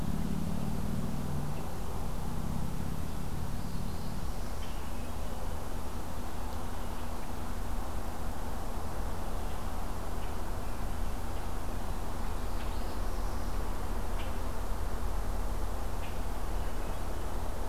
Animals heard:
Northern Parula (Setophaga americana)
Hermit Thrush (Catharus guttatus)
Common Grackle (Quiscalus quiscula)

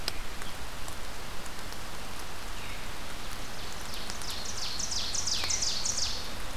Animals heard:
Ovenbird (Seiurus aurocapilla)

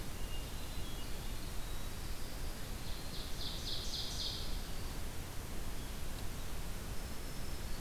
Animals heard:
Red-eyed Vireo (Vireo olivaceus)
Ovenbird (Seiurus aurocapilla)
Hermit Thrush (Catharus guttatus)
Winter Wren (Troglodytes hiemalis)

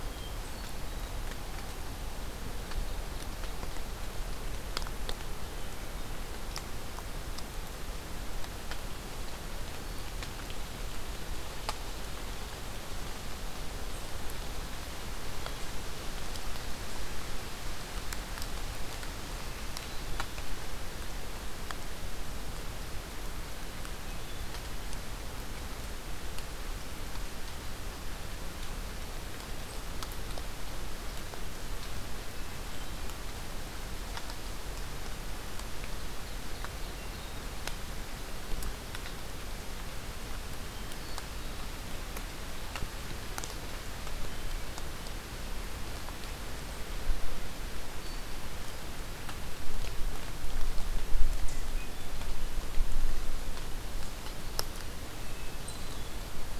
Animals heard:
Hermit Thrush (Catharus guttatus)
Ovenbird (Seiurus aurocapilla)

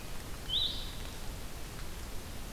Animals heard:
Blue-headed Vireo (Vireo solitarius)

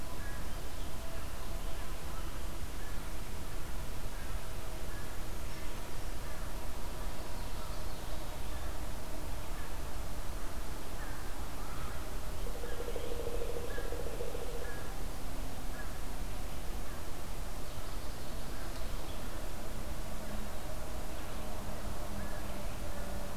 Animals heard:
American Crow (Corvus brachyrhynchos)

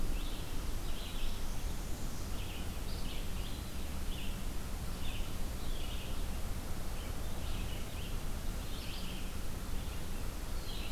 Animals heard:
Red-eyed Vireo (Vireo olivaceus)
Northern Parula (Setophaga americana)

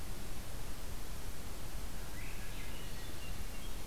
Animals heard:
Swainson's Thrush (Catharus ustulatus)
Hermit Thrush (Catharus guttatus)

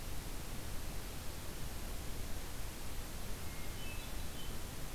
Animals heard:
Hermit Thrush (Catharus guttatus)

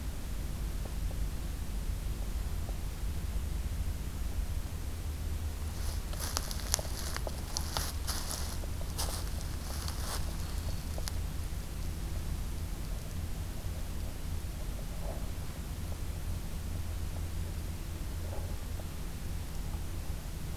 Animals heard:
Black-throated Green Warbler (Setophaga virens)

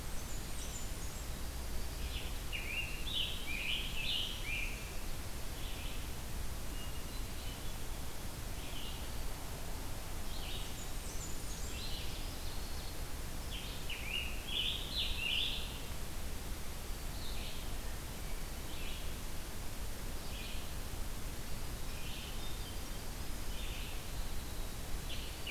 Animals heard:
Blackburnian Warbler (Setophaga fusca)
Scarlet Tanager (Piranga olivacea)
Red-eyed Vireo (Vireo olivaceus)
Ovenbird (Seiurus aurocapilla)

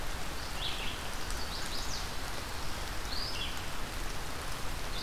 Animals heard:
Chestnut-sided Warbler (Setophaga pensylvanica)
Red-eyed Vireo (Vireo olivaceus)

